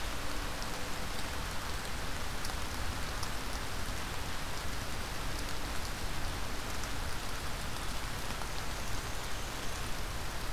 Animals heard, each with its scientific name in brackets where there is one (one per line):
Black-and-white Warbler (Mniotilta varia)